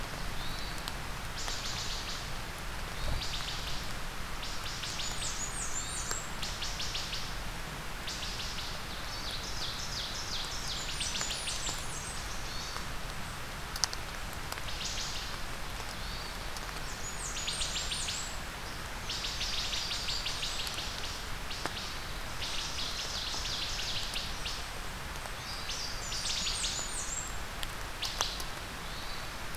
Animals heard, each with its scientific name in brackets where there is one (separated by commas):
Louisiana Waterthrush (Parkesia motacilla), Wood Thrush (Hylocichla mustelina), Blackburnian Warbler (Setophaga fusca), Hermit Thrush (Catharus guttatus), Ovenbird (Seiurus aurocapilla)